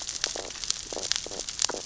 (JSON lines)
{"label": "biophony, stridulation", "recorder": "SoundTrap 600 or HydroMoth"}